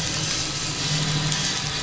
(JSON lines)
{"label": "anthrophony, boat engine", "recorder": "SoundTrap 500"}